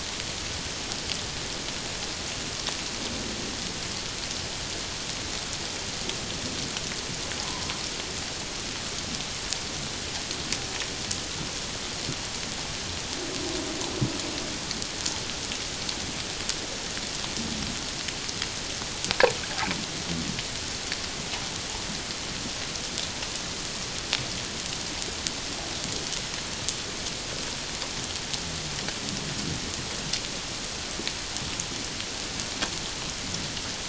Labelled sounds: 7.4	7.7	humpback whale, 0.91 to 1.1 kHz

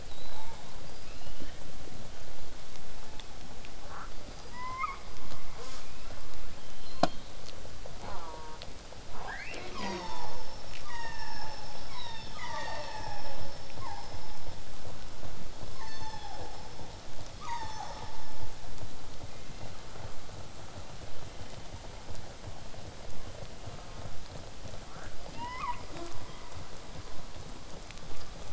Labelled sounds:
0.1	0.6	killer whale, southern resident, whistle, 3.6 to 8.0 kHz
0.3	0.6	killer whale, southern resident, J pod, call S04, 0.40 to 2.4 kHz
0.9	1.6	killer whale, southern resident, L pod, call S19, 1.1 to 5.5 kHz
2.9	3.3	killer whale, southern resident, 0.63 to 2.7 kHz
3.8	4.1	killer whale, southern resident, 0.36 to 2.2 kHz
4.1	5.0	killer whale, southern resident, L pod, call S19, 0.76 to 8.0 kHz
5.6	5.9	killer whale, southern resident, J pod, call S05, 0.36 to 8.0 kHz
5.7	6.2	killer whale, southern resident, L pod, call S19, 1.0 to 4.2 kHz
6.7	7.3	killer whale, southern resident, 0.81 to 4.5 kHz
8.0	8.6	killer whale, southern resident, J pod, call S04, 0.27 to 1.9 kHz
9.1	10.5	killer whale, southern resident, 0.22 to 7.7 kHz
10.8	11.6	killer whale, southern resident, 0.45 to 8.0 kHz
12.3	14.1	killer whale, southern resident, 0.49 to 7.6 kHz
17.4	18.2	killer whale, southern resident, 0.72 to 8.0 kHz
18.4	23.4	vessel noise, 0 to 8.0 kHz
23.6	24.1	killer whale, southern resident, J pod, call S04, 0.31 to 2.1 kHz
24.7	25.1	killer whale, southern resident, 0.36 to 1.8 kHz
25.1	25.8	killer whale, southern resident, L pod, call S19, 0.72 to 8.0 kHz
25.9	26.1	killer whale, southern resident, J pod, call S05, 0.18 to 7.2 kHz

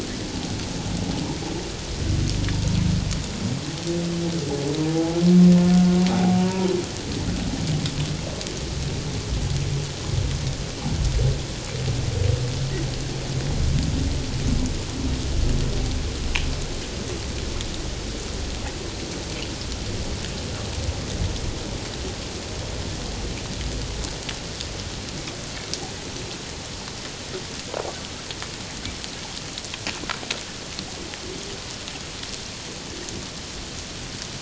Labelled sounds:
4.9	6.0	humpback whale, 0.78 to 1.5 kHz
6.4	6.7	humpback whale, 0.91 to 1.0 kHz

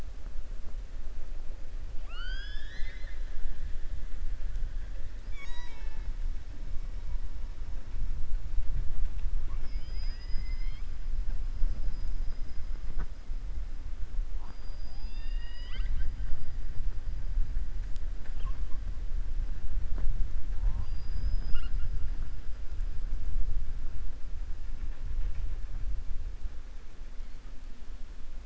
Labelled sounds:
1.9	3.2	killer whale, southern resident, 1.1 to 6.5 kHz
9.4	10.9	killer whale, southern resident, 1.0 to 5.3 kHz

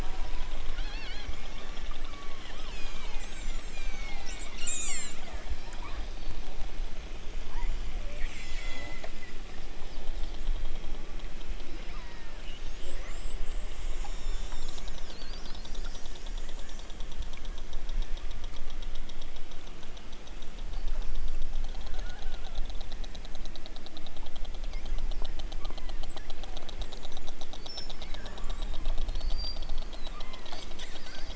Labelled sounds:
0.7	1.3	killer whale, southern Alaska resident, 1.7 to 6.0 kHz
1.9	5.2	killer whale, southern Alaska resident, 0.78 to 8.0 kHz
5.7	6.2	killer whale, southern Alaska resident, 0.73 to 3.7 kHz
8.3	9.0	killer whale, southern Alaska resident, 1.4 to 8.0 kHz
11.6	12.4	killer whale, southern Alaska resident, 3.3 to 5.6 kHz
25.6	26.1	killer whale, southern Alaska resident, 0.64 to 2.6 kHz
30.1	30.6	killer whale, southern Alaska resident, 0.92 to 2.3 kHz

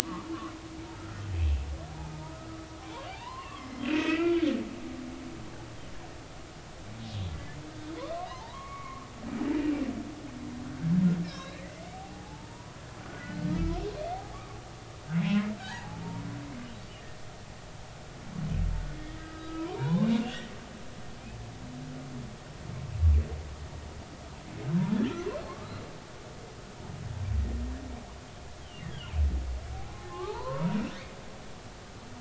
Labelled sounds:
1.9	4.5	humpback whale, 0.80 to 5.3 kHz
7.3	7.6	humpback whale, 2.0 to 2.1 kHz
7.9	9.1	humpback whale, 0.80 to 2.3 kHz
11.2	11.7	humpback whale, 3.7 to 5.6 kHz
11.9	13.8	humpback whale, 0.80 to 3.0 kHz
14.3	14.6	humpback whale, 1.1 to 1.3 kHz
15.6	16.0	humpback whale, 0.80 to 4.0 kHz
18.9	20.4	humpback whale, 0.90 to 3.5 kHz
28.6	29.1	humpback whale, 2.7 to 3.5 kHz
30.0	31.2	humpback whale, 0.80 to 2.5 kHz

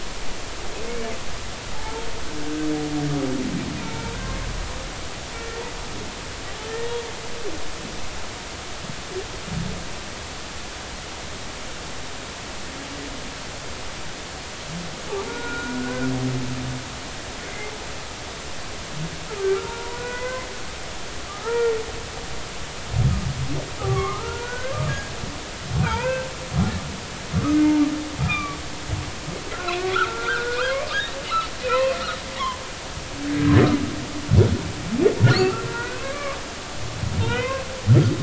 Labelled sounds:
0.9	2.0	humpback whale, 0.83 to 2.3 kHz
3.8	4.1	humpback whale, 2.2 to 2.5 kHz
5.3	5.6	humpback whale, 1.7 to 1.9 kHz
6.7	6.9	humpback whale, 1.7 to 1.9 kHz
15.3	16.1	humpback whale, 1.3 to 1.6 kHz
17.4	17.7	humpback whale, 2.0 to 2.2 kHz
19.6	20.5	humpback whale, 0.86 to 2.1 kHz
21.3	21.8	humpback whale, 0.86 to 1.9 kHz
23.8	26.3	humpback whale, 0.80 to 2.7 kHz
27.5	27.8	humpback whale, 2.0 to 2.2 kHz
28.2	28.6	humpback whale, 1.1 to 2.5 kHz
29.5	30.8	humpback whale, 0.96 to 1.7 kHz
31.6	32.0	humpback whale, 0.90 to 2.7 kHz
35.3	36.4	humpback whale, 0.99 to 4.6 kHz
37.2	37.7	humpback whale, 0.96 to 3.1 kHz

